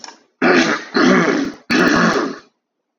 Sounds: Throat clearing